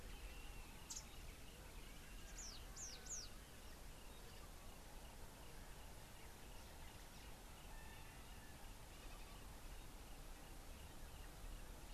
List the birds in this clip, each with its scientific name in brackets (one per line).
Red-fronted Prinia (Prinia rufifrons)